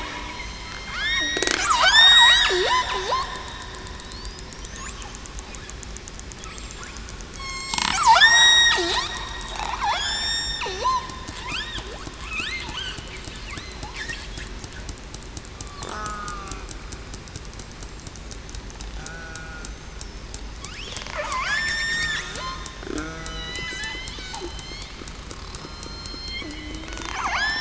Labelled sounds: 0.3	1.5	killer whale, southern resident, 1.6 to 8.0 kHz
1.8	2.8	killer whale, southern resident, 0.33 to 8.0 kHz
4.0	4.5	killer whale, southern resident, 3.8 to 5.3 kHz
7.3	7.8	killer whale, southern resident, 1.0 to 7.7 kHz
8.1	8.5	killer whale, southern resident, 1.3 to 1.9 kHz
9.8	10.2	killer whale, southern resident, 3.2 to 3.7 kHz
10.8	11.3	killer whale, southern resident, 0.91 to 1.1 kHz
13.6	14.0	killer whale, southern resident, 3.7 to 4.2 kHz
15.9	16.5	killer whale, southern resident, 1.1 to 1.4 kHz
19.0	19.3	killer whale, southern resident, 0.73 to 0.82 kHz
21.2	22.2	killer whale, southern resident, 0.98 to 7.4 kHz
23.2	23.6	killer whale, southern resident, 1.9 to 4.1 kHz
25.6	26.5	killer whale, southern resident, 3.1 to 5.3 kHz
27.1	27.6	killer whale, southern resident, 6.2 to 7.2 kHz

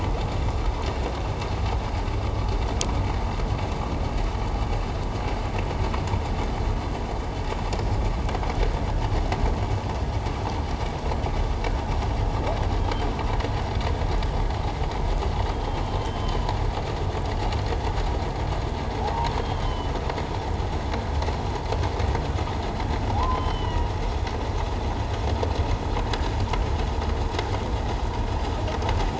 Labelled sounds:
15.5	16.5	humpback whale, 2.9 to 3.3 kHz
19.4	19.9	humpback whale, 2.9 to 3.3 kHz
23.1	23.8	humpback whale, 0.78 to 3.2 kHz

